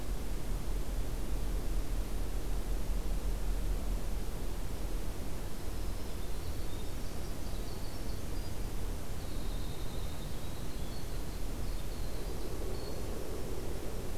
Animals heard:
Winter Wren (Troglodytes hiemalis)

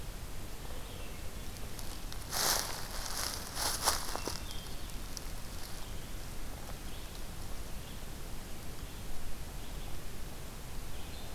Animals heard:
Hermit Thrush (Catharus guttatus)
Red-eyed Vireo (Vireo olivaceus)

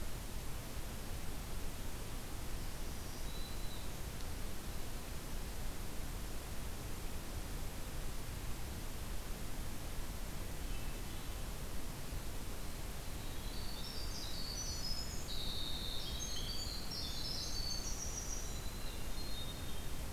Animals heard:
Black-throated Green Warbler (Setophaga virens)
Winter Wren (Troglodytes hiemalis)
Hermit Thrush (Catharus guttatus)

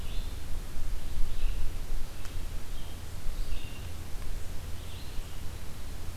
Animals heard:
Red-eyed Vireo (Vireo olivaceus)

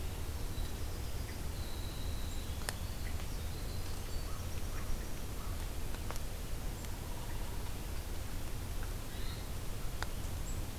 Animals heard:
Hermit Thrush (Catharus guttatus)
Winter Wren (Troglodytes hiemalis)
American Crow (Corvus brachyrhynchos)

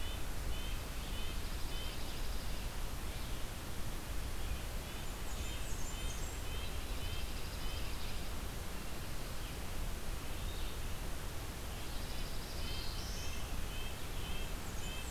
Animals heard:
Black-and-white Warbler (Mniotilta varia)
Black-throated Blue Warbler (Setophaga caerulescens)
Red-breasted Nuthatch (Sitta canadensis)
Dark-eyed Junco (Junco hyemalis)
Red-eyed Vireo (Vireo olivaceus)
Blackburnian Warbler (Setophaga fusca)

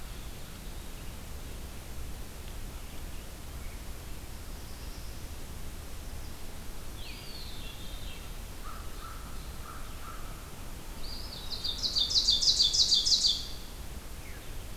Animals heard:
American Crow (Corvus brachyrhynchos)
Eastern Wood-Pewee (Contopus virens)
Ovenbird (Seiurus aurocapilla)
Veery (Catharus fuscescens)

